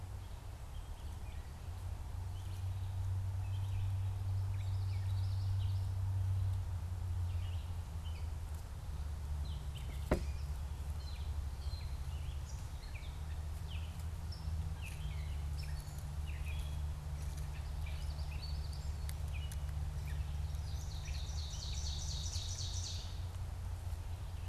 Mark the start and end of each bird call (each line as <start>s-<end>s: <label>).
0.0s-20.4s: Gray Catbird (Dumetella carolinensis)
4.3s-6.0s: Common Yellowthroat (Geothlypis trichas)
20.4s-23.8s: Ovenbird (Seiurus aurocapilla)